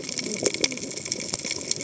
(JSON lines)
{"label": "biophony, cascading saw", "recorder": "HydroMoth"}